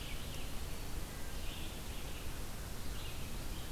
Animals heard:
Red-eyed Vireo (Vireo olivaceus), Eastern Wood-Pewee (Contopus virens)

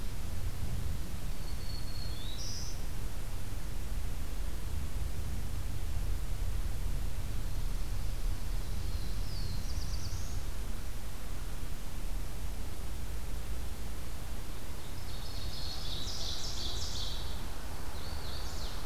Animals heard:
Ovenbird (Seiurus aurocapilla), Black-throated Blue Warbler (Setophaga caerulescens), Hooded Warbler (Setophaga citrina), Black-throated Green Warbler (Setophaga virens)

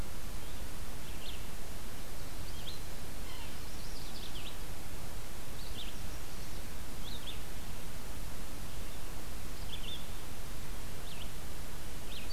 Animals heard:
Yellow-bellied Sapsucker (Sphyrapicus varius), Chestnut-sided Warbler (Setophaga pensylvanica), Red-eyed Vireo (Vireo olivaceus), Ovenbird (Seiurus aurocapilla)

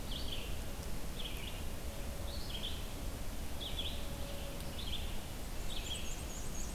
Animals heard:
Red-eyed Vireo (Vireo olivaceus), Black-and-white Warbler (Mniotilta varia)

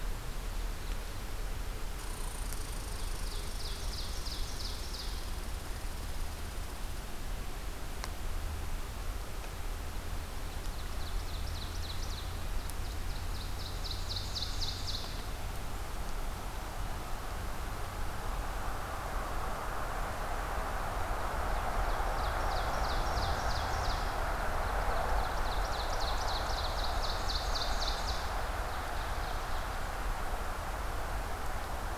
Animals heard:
Red Squirrel (Tamiasciurus hudsonicus), Ovenbird (Seiurus aurocapilla)

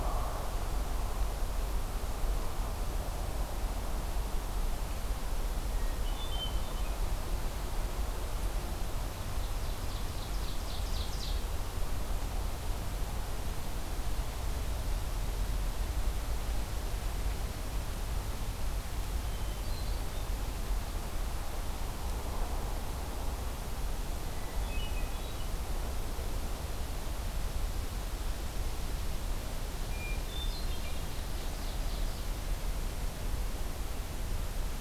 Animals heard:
Hermit Thrush (Catharus guttatus), Ovenbird (Seiurus aurocapilla)

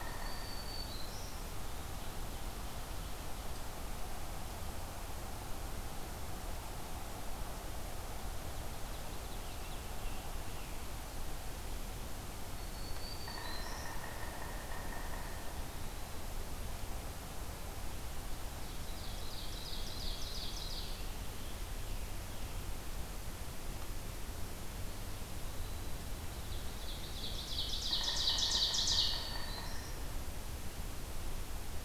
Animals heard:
Ovenbird (Seiurus aurocapilla), Black-throated Green Warbler (Setophaga virens), Eastern Wood-Pewee (Contopus virens), Yellow-bellied Sapsucker (Sphyrapicus varius), Scarlet Tanager (Piranga olivacea)

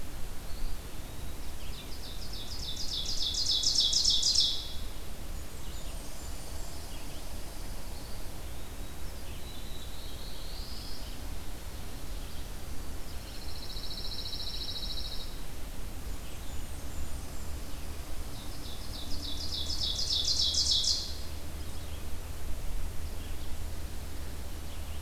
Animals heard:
Red-eyed Vireo (Vireo olivaceus), Ovenbird (Seiurus aurocapilla), Black-throated Blue Warbler (Setophaga caerulescens), Eastern Wood-Pewee (Contopus virens), Blackburnian Warbler (Setophaga fusca), Pine Warbler (Setophaga pinus)

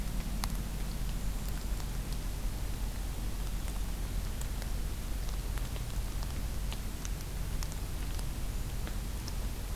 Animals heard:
Golden-crowned Kinglet (Regulus satrapa)

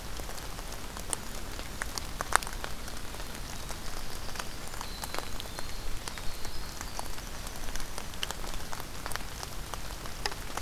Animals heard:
Winter Wren (Troglodytes hiemalis), Golden-crowned Kinglet (Regulus satrapa)

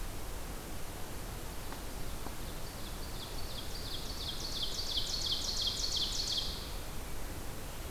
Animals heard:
Ovenbird (Seiurus aurocapilla)

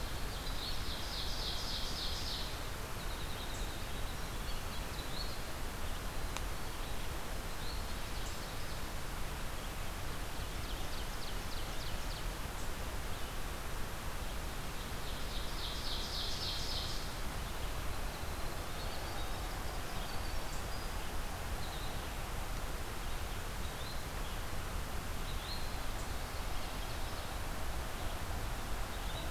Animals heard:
Ovenbird (Seiurus aurocapilla), Winter Wren (Troglodytes hiemalis), Yellow-bellied Flycatcher (Empidonax flaviventris)

